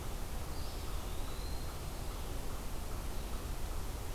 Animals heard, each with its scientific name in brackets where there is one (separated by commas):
unknown mammal, Eastern Wood-Pewee (Contopus virens)